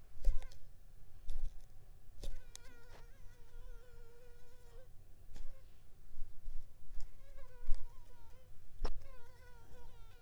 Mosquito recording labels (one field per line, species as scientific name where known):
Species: Culex pipiens complex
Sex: female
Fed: unfed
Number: one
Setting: cup